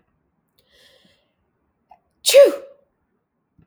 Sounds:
Sneeze